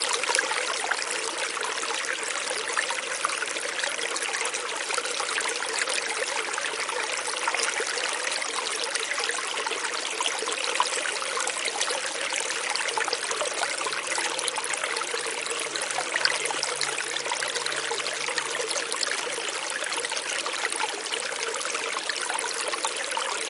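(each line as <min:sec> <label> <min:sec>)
0:00.0 Water pours steadily into a bathtub, creating a deep, echoing splash as the tub gradually fills, producing a soothing indoor sound. 0:23.5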